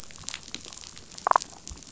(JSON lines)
{"label": "biophony, damselfish", "recorder": "SoundTrap 500"}